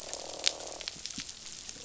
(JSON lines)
{"label": "biophony, croak", "recorder": "SoundTrap 500"}